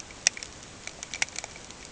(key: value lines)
label: ambient
recorder: HydroMoth